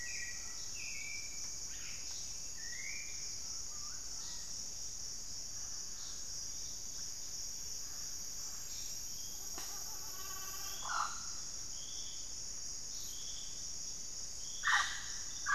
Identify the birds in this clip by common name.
Hauxwell's Thrush, Mealy Parrot, unidentified bird, Scale-breasted Woodpecker